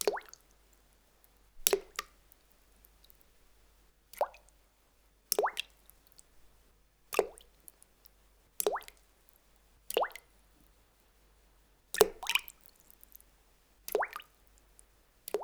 What is the water doing?
dripping